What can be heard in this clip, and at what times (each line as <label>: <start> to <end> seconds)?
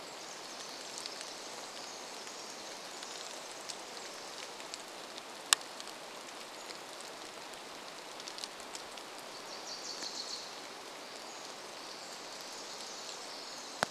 Pacific Wren song: 0 to 6 seconds
rain: 0 to 14 seconds
Pacific-slope Flycatcher call: 6 to 8 seconds
Wilson's Warbler song: 8 to 12 seconds
Pacific Wren song: 10 to 14 seconds